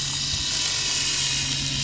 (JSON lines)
{"label": "anthrophony, boat engine", "recorder": "SoundTrap 500"}